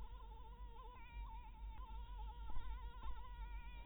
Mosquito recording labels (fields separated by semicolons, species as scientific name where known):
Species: Anopheles dirus; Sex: female; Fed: blood-fed; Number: one; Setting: cup